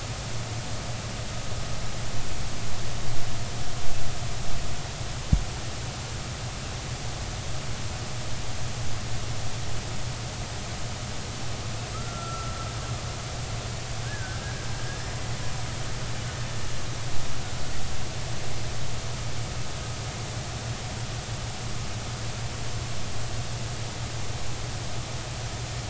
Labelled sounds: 11.9	12.6	killer whale, Bigg's (transient), 1.2 to 1.4 kHz
14.1	14.4	killer whale, Bigg's (transient), 1.4 to 1.8 kHz

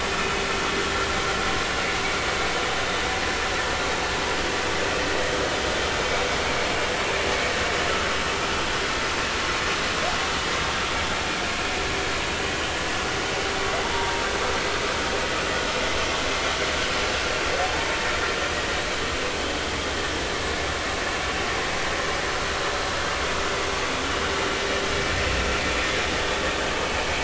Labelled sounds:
6.0	6.2	humpback whale, 2.2 to 2.4 kHz
13.9	14.2	humpback whale, 0.90 to 0.99 kHz
17.6	18.0	humpback whale, 0.80 to 0.96 kHz

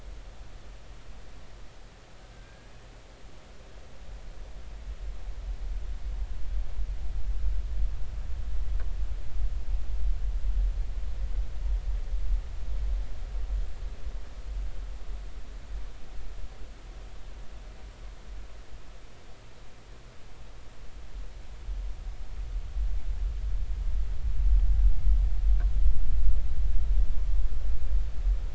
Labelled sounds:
2.3	2.7	killer whale, Bigg's (transient), 1.5 to 1.7 kHz

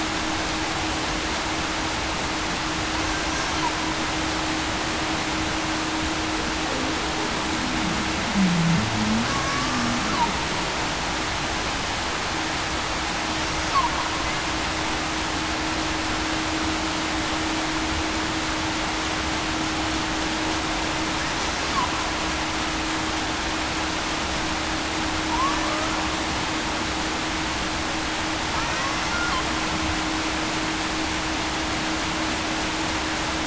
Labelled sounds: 8.3	8.6	humpback whale, 0.19 to 0.23 kHz
9.3	9.8	killer whale, Bigg's (transient), 1.1 to 1.2 kHz

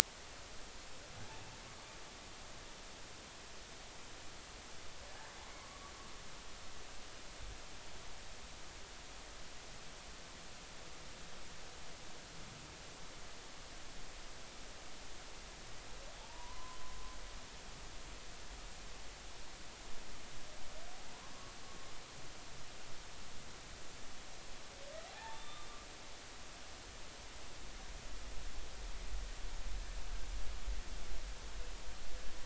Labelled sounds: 5.6	5.9	humpback whale, 0.99 to 1.2 kHz
16.2	16.8	humpback whale, 0.80 to 1.1 kHz
21.2	21.5	humpback whale, 0.96 to 1.2 kHz
25.1	25.7	humpback whale, 0.80 to 3.7 kHz

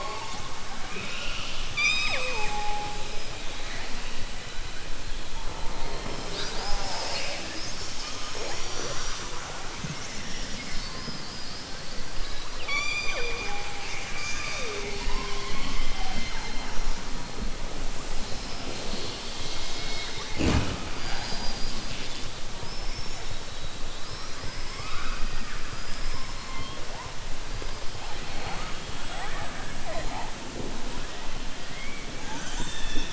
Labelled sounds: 0.7	2.9	killer whale, southern resident, 0.42 to 7.6 kHz
25.7	26.4	killer whale, southern resident, 4.8 to 5.4 kHz

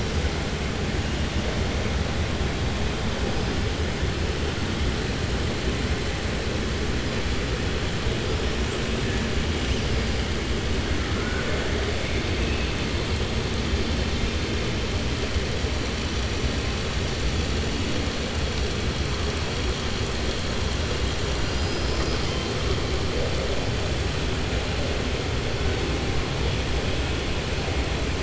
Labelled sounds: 11.0	11.7	killer whale, southern resident, 0.59 to 2.2 kHz
21.4	22.4	killer whale, southern resident, 3.0 to 6.1 kHz

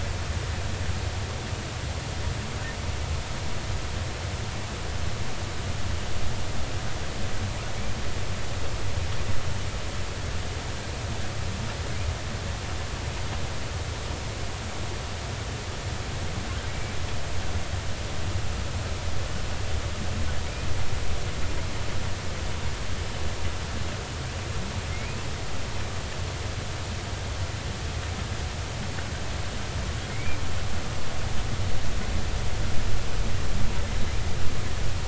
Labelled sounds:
16.7	17.0	humpback whale, 2.2 to 2.4 kHz
30.1	30.4	humpback whale, 2.1 to 2.4 kHz

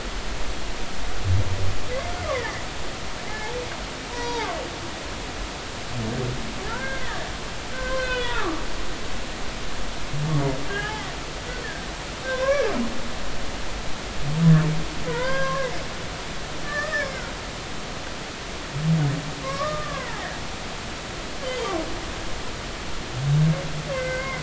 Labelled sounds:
2.3	2.6	humpback whale, 1.7 to 2.2 kHz
4.1	4.5	humpback whale, 0.80 to 5.8 kHz
6.7	9.1	humpback whale, 0.80 to 3.6 kHz
10.7	11.9	humpback whale, 0.80 to 3.1 kHz
12.2	12.7	humpback whale, 0.96 to 1.8 kHz
15.1	15.7	humpback whale, 0.90 to 4.9 kHz
16.6	17.2	humpback whale, 1.1 to 5.4 kHz
19.4	20.2	humpback whale, 0.80 to 2.2 kHz
23.9	24.4	humpback whale, 1.5 to 2.2 kHz

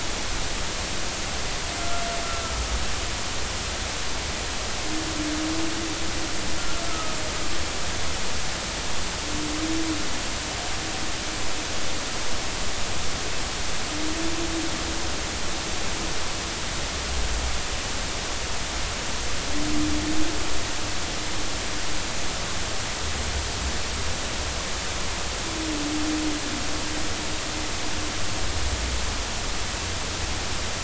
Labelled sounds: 1.8	2.0	humpback whale, 1.2 to 1.4 kHz
6.9	7.2	humpback whale, 1.2 to 1.4 kHz

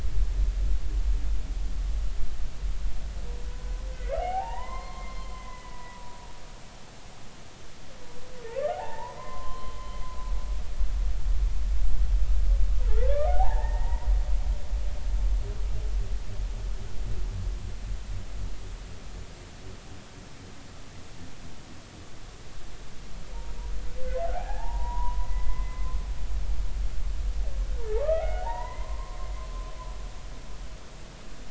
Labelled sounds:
3.5	6.1	humpback whale, 0.80 to 4.3 kHz
8.7	9.8	humpback whale, 0.80 to 3.2 kHz
13.1	14.1	humpback whale, 0.80 to 3.6 kHz
24.0	26.0	humpback whale, 0.80 to 2.1 kHz
28.0	29.2	humpback whale, 0.80 to 2.1 kHz

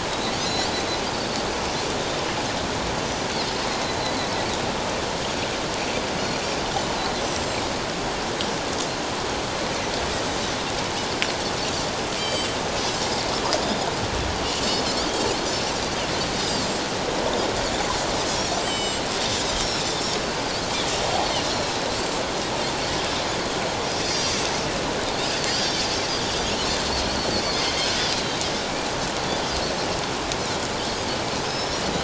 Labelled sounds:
7.3	7.6	Pacific white-sided dolphin, 7.4 to 7.8 kHz
10.2	10.4	Pacific white-sided dolphin, 7.8 to 8.0 kHz
12.2	12.5	Pacific white-sided dolphin, 2.3 to 7.9 kHz
14.6	14.9	Pacific white-sided dolphin, 4.3 to 4.5 kHz
16.4	16.8	Pacific white-sided dolphin, 4.9 to 7.8 kHz
18.6	19.0	Pacific white-sided dolphin, 2.9 to 7.9 kHz
24.0	24.4	Pacific white-sided dolphin, 4.6 to 5.8 kHz
25.5	25.8	Pacific white-sided dolphin, 4.6 to 5.8 kHz
27.1	27.3	Pacific white-sided dolphin, 4.2 to 4.6 kHz
27.6	28.4	Pacific white-sided dolphin, 3.1 to 4.2 kHz
31.4	31.8	Pacific white-sided dolphin, 3.8 to 5.9 kHz

